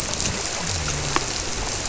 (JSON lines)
{"label": "biophony", "recorder": "SoundTrap 300"}